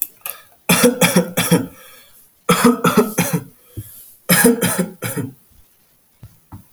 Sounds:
Cough